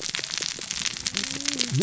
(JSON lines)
{"label": "biophony, cascading saw", "recorder": "SoundTrap 600 or HydroMoth"}